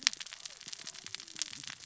{"label": "biophony, cascading saw", "recorder": "SoundTrap 600 or HydroMoth"}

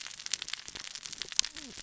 {"label": "biophony, cascading saw", "recorder": "SoundTrap 600 or HydroMoth"}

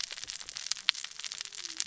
{"label": "biophony, cascading saw", "recorder": "SoundTrap 600 or HydroMoth"}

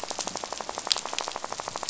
{"label": "biophony, rattle", "recorder": "SoundTrap 500"}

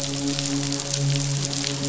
{"label": "biophony, midshipman", "recorder": "SoundTrap 500"}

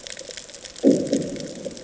{"label": "anthrophony, bomb", "recorder": "HydroMoth"}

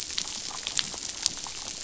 {"label": "biophony, damselfish", "recorder": "SoundTrap 500"}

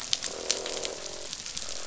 {"label": "biophony, croak", "recorder": "SoundTrap 500"}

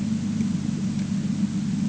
{"label": "anthrophony, boat engine", "recorder": "HydroMoth"}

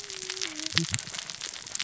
{"label": "biophony, cascading saw", "recorder": "SoundTrap 600 or HydroMoth"}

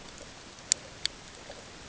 {"label": "ambient", "recorder": "HydroMoth"}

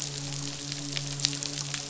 {"label": "biophony, midshipman", "recorder": "SoundTrap 500"}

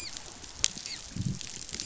{"label": "biophony, dolphin", "recorder": "SoundTrap 500"}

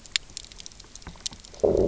{"label": "biophony, low growl", "recorder": "SoundTrap 300"}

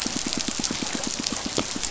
{"label": "biophony, pulse", "recorder": "SoundTrap 500"}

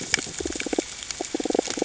{"label": "ambient", "recorder": "HydroMoth"}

